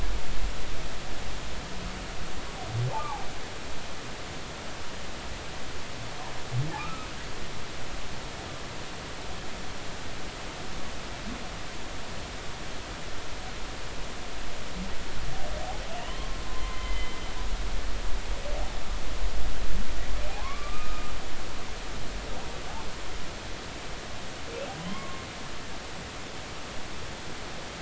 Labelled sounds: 2.9	3.2	humpback whale, 0.80 to 1.3 kHz
6.8	7.1	humpback whale, 1.1 to 1.4 kHz
16.0	17.2	humpback whale, 0.99 to 3.3 kHz
20.3	21.1	humpback whale, 0.80 to 1.3 kHz
24.8	25.2	humpback whale, 0.99 to 2.2 kHz

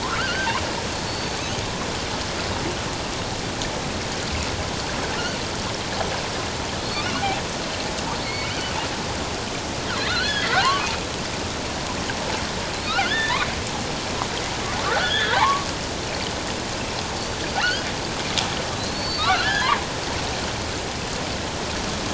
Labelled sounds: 0.0	0.6	killer whale, offshore, 0.88 to 1.7 kHz
1.1	1.4	killer whale, offshore, 4.4 to 4.6 kHz
6.8	7.0	killer whale, offshore, 4.0 to 4.5 kHz
8.2	8.7	killer whale, offshore, 2.1 to 4.6 kHz
9.9	10.9	killer whale, offshore, 0.91 to 4.5 kHz
12.9	13.5	killer whale, offshore, 1.2 to 3.7 kHz
14.8	15.7	killer whale, offshore, 0.78 to 3.6 kHz
17.6	17.9	killer whale, offshore, 1.3 to 3.3 kHz
18.8	19.8	killer whale, offshore, 0.88 to 4.7 kHz

